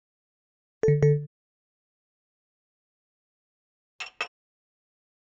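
At the start, a telephone can be heard. Then, about 4 seconds in, chinking is heard.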